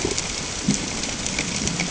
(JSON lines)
{"label": "ambient", "recorder": "HydroMoth"}